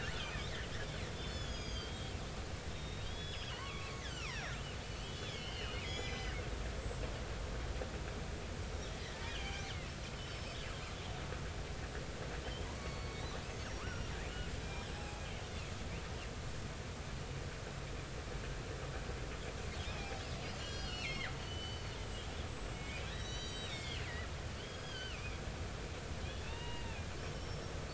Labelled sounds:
0.2	0.5	killer whale, northern resident, 2.2 to 2.6 kHz
1.2	2.1	killer whale, northern resident, 3.1 to 7.0 kHz
2.7	4.5	killer whale, northern resident, 0.96 to 6.9 kHz
5.0	6.4	killer whale, northern resident, 1.5 to 6.1 kHz
9.2	9.7	killer whale, northern resident, 2.1 to 3.5 kHz
10.1	10.6	killer whale, northern resident, 5.1 to 5.3 kHz
12.6	15.2	killer whale, northern resident, 0.80 to 8.0 kHz
19.9	25.4	killer whale, northern resident, 1.4 to 8.0 kHz
26.2	27.7	killer whale, northern resident, 0.80 to 5.6 kHz

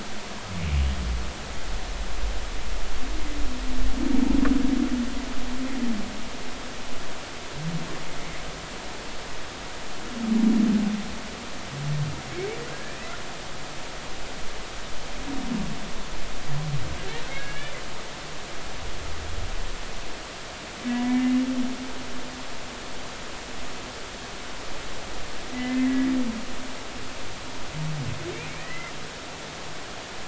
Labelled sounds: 12.7	13.0	humpback whale, 1.6 to 1.9 kHz
17.3	17.7	humpback whale, 1.6 to 3.0 kHz
21.0	21.3	humpback whale, 1.7 to 2.1 kHz
25.5	26.1	humpback whale, 1.7 to 2.1 kHz
28.5	30.0	humpback whale, 1.8 to 2.6 kHz

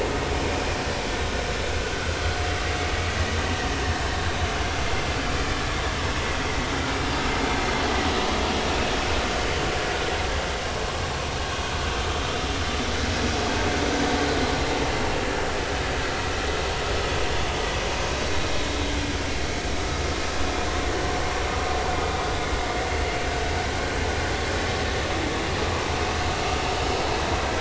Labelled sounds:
1.9	2.2	vessel noise, 1.3 to 1.6 kHz
6.0	6.2	vessel noise, 5.2 to 5.4 kHz

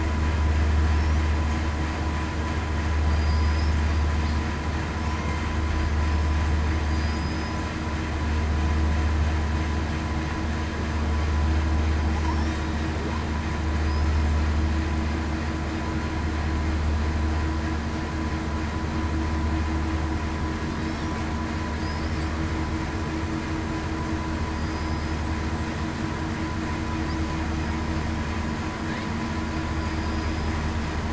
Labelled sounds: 3.1	3.7	killer whale, southern resident, 4.7 to 5.1 kHz
6.9	7.6	killer whale, southern resident, 4.7 to 5.1 kHz
24.5	25.2	killer whale, southern resident, 4.8 to 8.0 kHz
29.9	30.5	killer whale, southern resident, 4.8 to 5.0 kHz

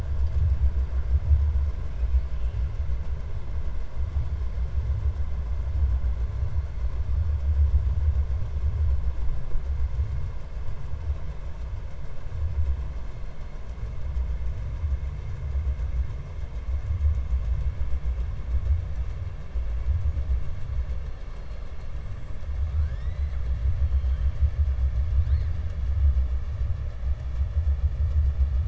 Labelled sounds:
22.7	23.4	killer whale, 1.3 to 7.1 kHz
23.9	24.3	killer whale, 2.1 to 4.2 kHz

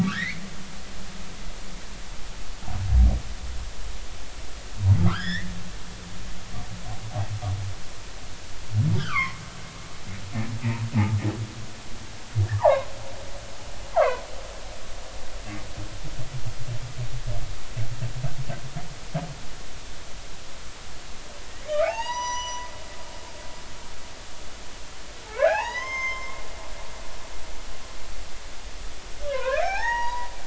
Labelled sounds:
0.0	0.4	humpback whale, 1.1 to 2.4 kHz
5.0	6.4	humpback whale, 0.99 to 5.4 kHz
9.0	9.4	humpback whale, 0.96 to 2.7 kHz
10.6	10.8	humpback whale, 2.3 to 2.7 kHz
12.5	12.9	humpback whale, 0.80 to 1.3 kHz
13.9	14.2	humpback whale, 0.80 to 1.5 kHz
21.7	22.7	humpback whale, 0.80 to 6.0 kHz
25.3	26.4	humpback whale, 0.80 to 6.4 kHz
29.2	30.3	humpback whale, 0.80 to 6.7 kHz

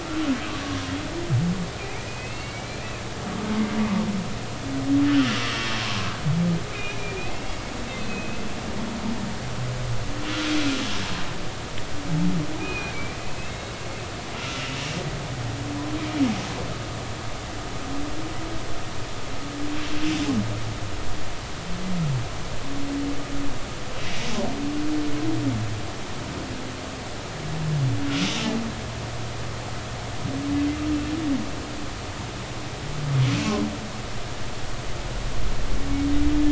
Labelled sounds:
0.6	0.9	humpback whale, 1.0 to 1.2 kHz
2.1	2.8	humpback whale, 2.1 to 4.5 kHz
5.1	6.1	humpback whale, 0.96 to 3.3 kHz
6.7	9.4	humpback whale, 2.0 to 3.8 kHz
12.6	13.8	humpback whale, 2.4 to 4.2 kHz
14.3	14.7	humpback whale, 1.3 to 2.8 kHz

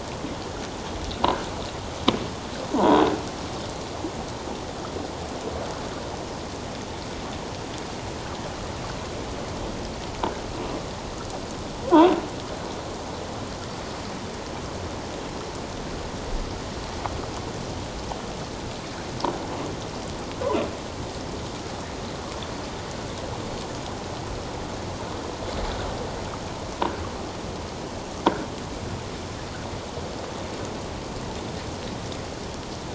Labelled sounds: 2.7	3.0	croaking sound likely from a nearby submerged object, 0.78 to 1.1 kHz

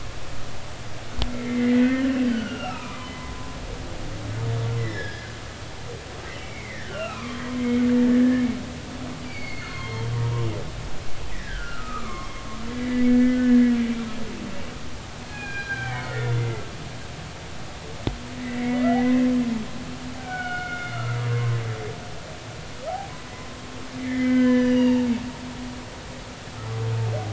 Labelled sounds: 1.3	3.3	humpback whale, 0.80 to 4.9 kHz
4.8	5.3	humpback whale, 1.5 to 5.4 kHz
6.4	8.5	humpback whale, 0.96 to 3.1 kHz
9.2	10.5	humpback whale, 0.90 to 4.8 kHz
11.3	13.7	humpback whale, 1.0 to 2.6 kHz
15.3	16.6	humpback whale, 1.3 to 3.6 kHz
18.3	19.3	humpback whale, 1.8 to 2.3 kHz
20.2	21.6	humpback whale, 0.99 to 4.4 kHz
23.3	25.1	humpback whale, 0.83 to 6.0 kHz

